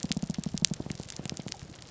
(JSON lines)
{"label": "biophony, grouper groan", "recorder": "SoundTrap 300"}